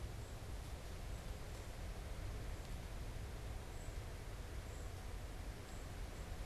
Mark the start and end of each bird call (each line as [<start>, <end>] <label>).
[3.65, 6.45] Golden-crowned Kinglet (Regulus satrapa)